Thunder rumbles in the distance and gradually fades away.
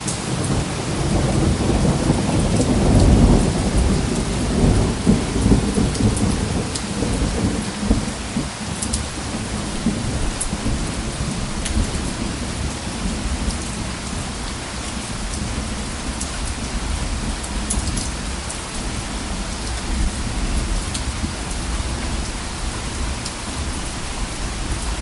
1.1s 9.4s

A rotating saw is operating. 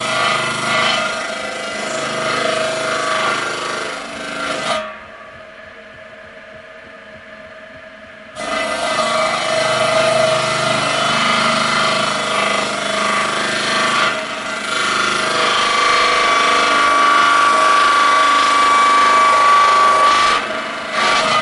5.1s 8.3s

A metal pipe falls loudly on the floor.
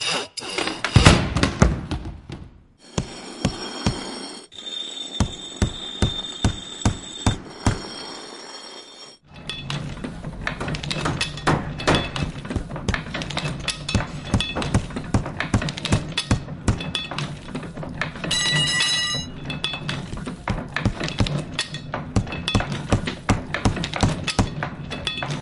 18.3s 19.4s

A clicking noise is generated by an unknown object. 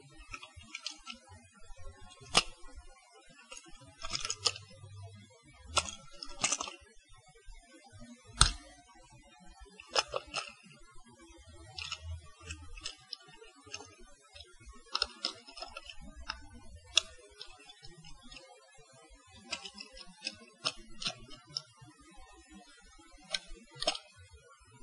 2.3s 2.6s, 4.0s 4.6s, 5.6s 6.8s, 8.4s 8.6s, 9.9s 10.6s, 11.8s 13.9s, 14.9s 15.4s, 16.9s 17.1s, 19.4s 21.7s, 23.3s 24.0s

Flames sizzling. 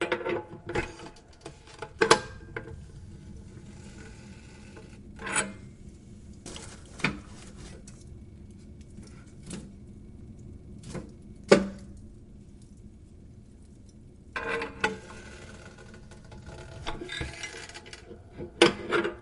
3.2s 5.0s

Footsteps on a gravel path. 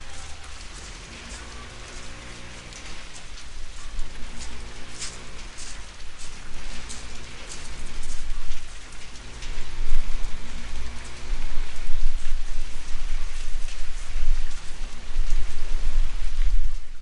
0.1s 10.9s

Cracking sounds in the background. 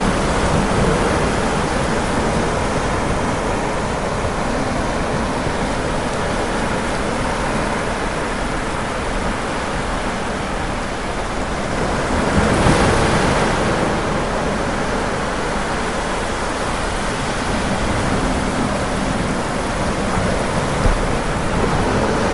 6.1s 7.2s

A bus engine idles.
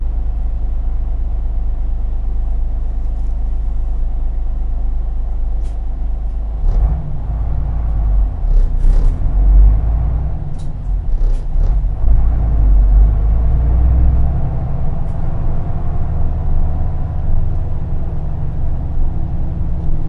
0.0s 6.6s

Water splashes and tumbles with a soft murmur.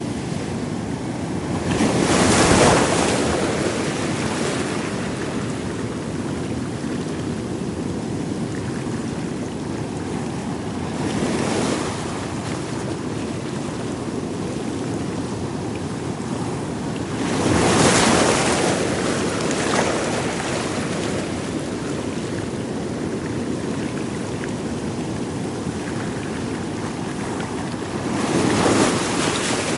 6.1s 11.2s, 12.6s 17.4s, 18.5s 29.8s

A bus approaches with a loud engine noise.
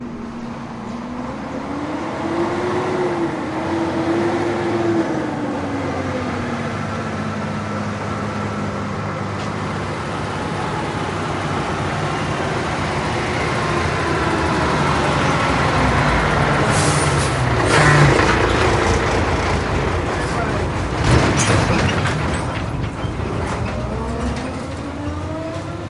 0.1s 17.5s

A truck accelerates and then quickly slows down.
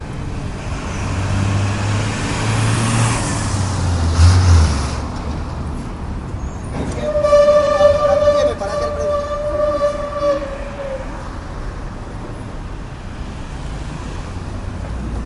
0.1s 6.5s

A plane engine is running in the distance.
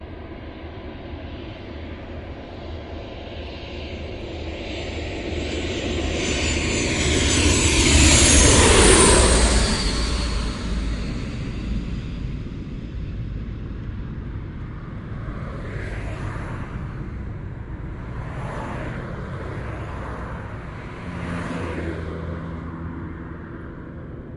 5.0s 11.3s

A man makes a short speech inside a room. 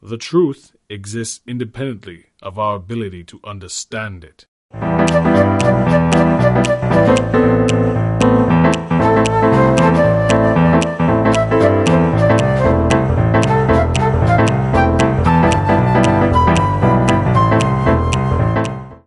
0.0s 4.7s

